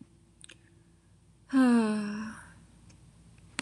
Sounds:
Sigh